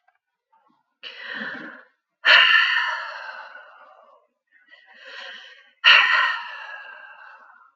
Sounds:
Sigh